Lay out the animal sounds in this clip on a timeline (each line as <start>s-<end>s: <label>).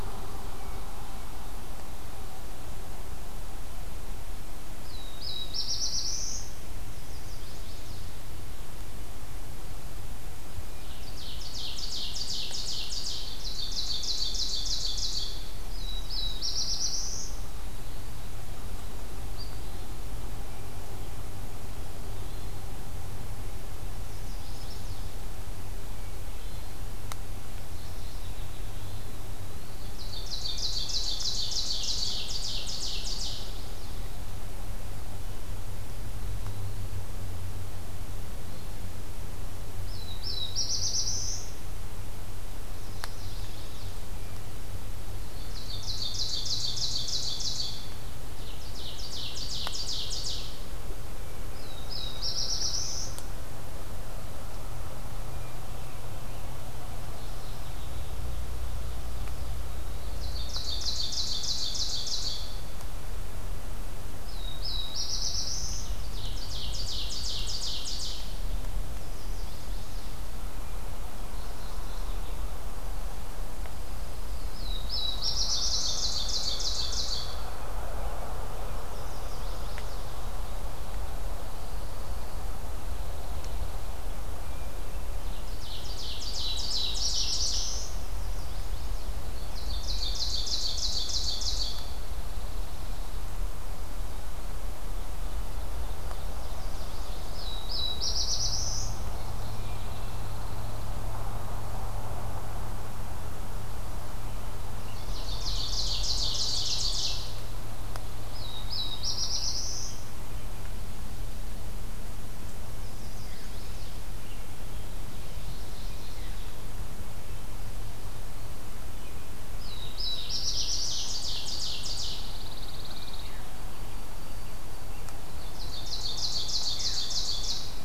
0.6s-1.6s: Hermit Thrush (Catharus guttatus)
4.6s-6.6s: Black-throated Blue Warbler (Setophaga caerulescens)
6.8s-8.2s: Chestnut-sided Warbler (Setophaga pensylvanica)
10.9s-15.5s: Ovenbird (Seiurus aurocapilla)
15.5s-17.6s: Black-throated Blue Warbler (Setophaga caerulescens)
17.4s-18.3s: Eastern Wood-Pewee (Contopus virens)
21.9s-22.8s: Hermit Thrush (Catharus guttatus)
24.0s-25.1s: Chestnut-sided Warbler (Setophaga pensylvanica)
26.1s-26.8s: Hermit Thrush (Catharus guttatus)
27.6s-28.8s: Mourning Warbler (Geothlypis philadelphia)
28.6s-29.1s: Hermit Thrush (Catharus guttatus)
29.0s-29.9s: Eastern Wood-Pewee (Contopus virens)
29.6s-33.5s: Ovenbird (Seiurus aurocapilla)
33.1s-34.1s: Chestnut-sided Warbler (Setophaga pensylvanica)
36.2s-37.1s: Eastern Wood-Pewee (Contopus virens)
38.2s-38.9s: Hermit Thrush (Catharus guttatus)
39.6s-41.6s: Black-throated Blue Warbler (Setophaga caerulescens)
42.6s-44.0s: Chestnut-sided Warbler (Setophaga pensylvanica)
45.2s-48.2s: Ovenbird (Seiurus aurocapilla)
48.5s-50.7s: Ovenbird (Seiurus aurocapilla)
51.4s-53.2s: Black-throated Blue Warbler (Setophaga caerulescens)
57.0s-58.2s: Mourning Warbler (Geothlypis philadelphia)
59.7s-60.3s: Eastern Wood-Pewee (Contopus virens)
60.0s-62.7s: Ovenbird (Seiurus aurocapilla)
64.1s-66.0s: Black-throated Blue Warbler (Setophaga caerulescens)
65.9s-68.5s: Ovenbird (Seiurus aurocapilla)
68.9s-70.1s: Chestnut-sided Warbler (Setophaga pensylvanica)
71.3s-72.4s: Mourning Warbler (Geothlypis philadelphia)
73.6s-75.2s: Pine Warbler (Setophaga pinus)
74.3s-76.0s: Black-throated Blue Warbler (Setophaga caerulescens)
75.2s-77.6s: Ovenbird (Seiurus aurocapilla)
78.7s-80.0s: Chestnut-sided Warbler (Setophaga pensylvanica)
81.3s-84.2s: Pine Warbler (Setophaga pinus)
84.4s-85.1s: Hermit Thrush (Catharus guttatus)
85.4s-88.2s: Ovenbird (Seiurus aurocapilla)
86.1s-88.0s: Black-throated Blue Warbler (Setophaga caerulescens)
87.9s-89.1s: Chestnut-sided Warbler (Setophaga pensylvanica)
89.4s-92.1s: Ovenbird (Seiurus aurocapilla)
91.8s-93.4s: Pine Warbler (Setophaga pinus)
95.8s-97.3s: Ovenbird (Seiurus aurocapilla)
97.2s-99.0s: Black-throated Blue Warbler (Setophaga caerulescens)
99.1s-99.9s: Mourning Warbler (Geothlypis philadelphia)
99.6s-101.0s: Pine Warbler (Setophaga pinus)
101.0s-101.9s: Eastern Wood-Pewee (Contopus virens)
104.9s-107.5s: Ovenbird (Seiurus aurocapilla)
107.3s-108.8s: Pine Warbler (Setophaga pinus)
108.1s-110.0s: Black-throated Blue Warbler (Setophaga caerulescens)
112.6s-114.0s: Chestnut-sided Warbler (Setophaga pensylvanica)
115.5s-116.6s: Mourning Warbler (Geothlypis philadelphia)
119.5s-121.1s: Black-throated Blue Warbler (Setophaga caerulescens)
119.7s-122.5s: Ovenbird (Seiurus aurocapilla)
121.8s-123.5s: Pine Warbler (Setophaga pinus)
122.6s-126.1s: White-throated Sparrow (Zonotrichia albicollis)
125.3s-127.8s: Ovenbird (Seiurus aurocapilla)